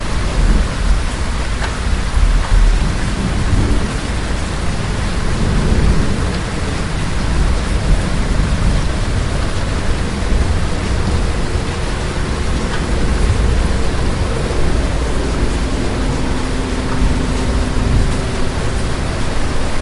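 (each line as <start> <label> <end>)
0.0 Raindrops continuously pour onto a hard surface during a rainstorm. 19.8
5.1 A plane's engine hums in the distance as it flies by. 19.8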